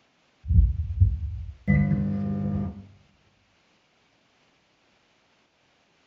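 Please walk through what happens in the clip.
First, at the start, heart sounds are heard. After that, about 2 seconds in, you can hear a microwave oven.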